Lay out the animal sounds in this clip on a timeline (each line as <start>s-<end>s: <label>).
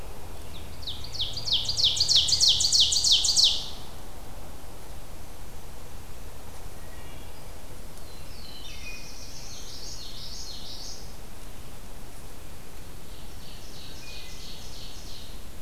0.2s-3.7s: Ovenbird (Seiurus aurocapilla)
6.7s-7.6s: Wood Thrush (Hylocichla mustelina)
8.0s-9.9s: Black-throated Blue Warbler (Setophaga caerulescens)
8.4s-9.4s: Wood Thrush (Hylocichla mustelina)
9.3s-11.3s: Common Yellowthroat (Geothlypis trichas)
12.9s-15.5s: Ovenbird (Seiurus aurocapilla)
13.7s-14.8s: Wood Thrush (Hylocichla mustelina)